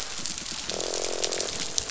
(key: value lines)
label: biophony
recorder: SoundTrap 500

label: biophony, croak
recorder: SoundTrap 500